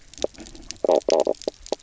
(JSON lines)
{"label": "biophony, knock croak", "recorder": "SoundTrap 300"}